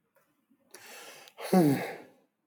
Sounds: Sigh